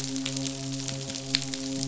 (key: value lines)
label: biophony, midshipman
recorder: SoundTrap 500